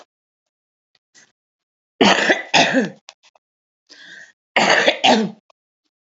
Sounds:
Cough